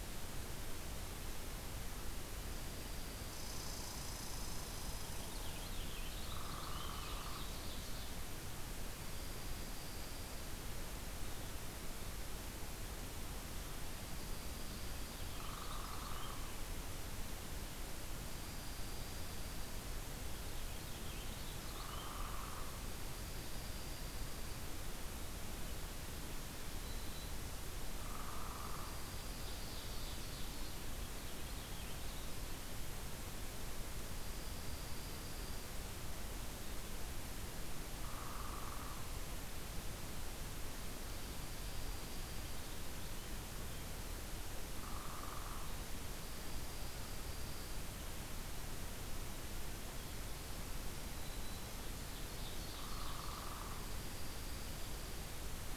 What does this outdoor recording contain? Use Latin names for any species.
Junco hyemalis, Tamiasciurus hudsonicus, Haemorhous purpureus, Colaptes auratus, Setophaga virens, Seiurus aurocapilla